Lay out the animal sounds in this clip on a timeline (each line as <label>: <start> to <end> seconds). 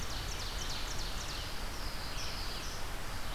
Ovenbird (Seiurus aurocapilla): 0.0 to 1.5 seconds
Red-eyed Vireo (Vireo olivaceus): 0.0 to 3.3 seconds
Black-throated Blue Warbler (Setophaga caerulescens): 1.2 to 2.9 seconds